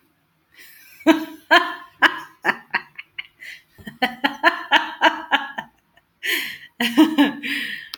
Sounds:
Laughter